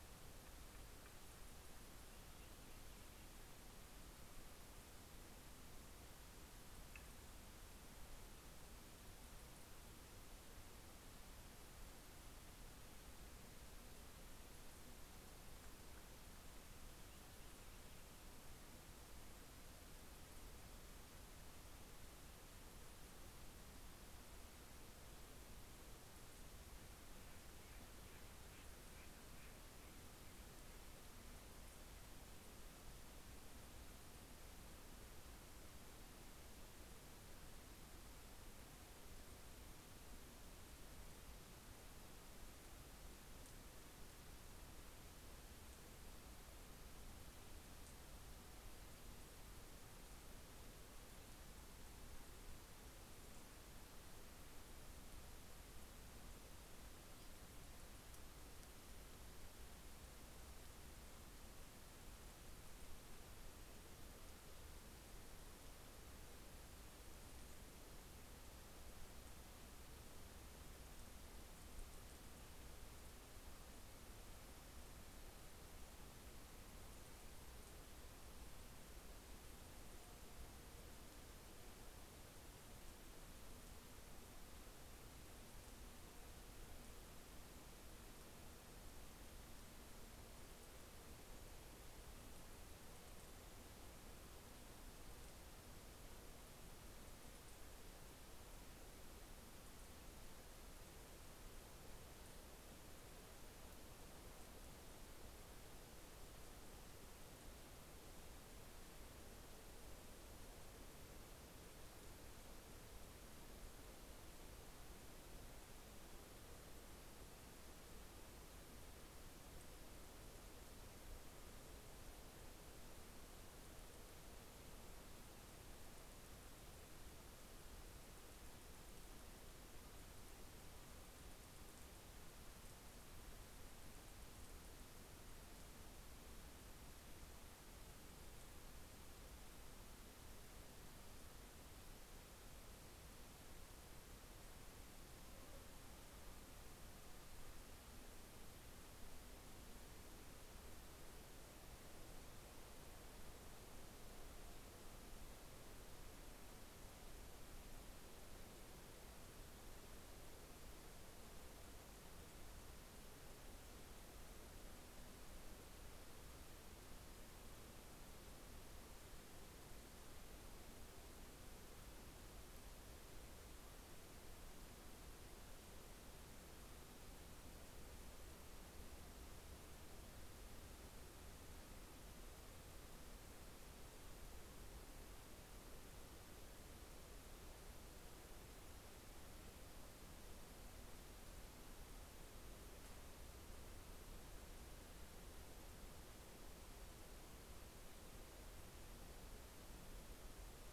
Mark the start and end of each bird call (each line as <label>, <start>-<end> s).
Purple Finch (Haemorhous purpureus), 15.7-19.4 s
Williamson's Sapsucker (Sphyrapicus thyroideus), 25.3-32.0 s